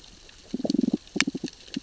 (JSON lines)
{"label": "biophony, damselfish", "recorder": "SoundTrap 600 or HydroMoth"}